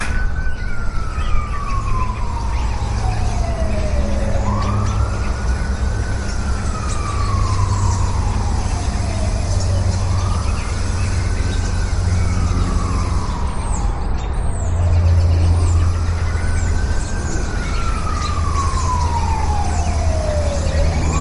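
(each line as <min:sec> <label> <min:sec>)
0:00.0 Birds are flying outdoors while a siren sounds continuously with city noise in the background. 0:21.2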